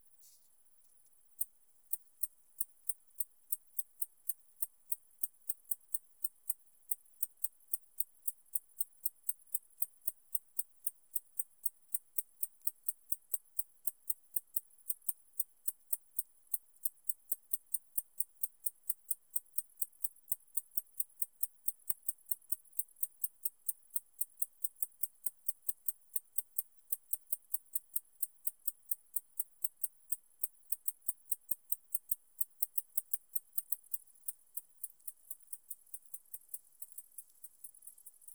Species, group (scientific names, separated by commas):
Decticus albifrons, Orthoptera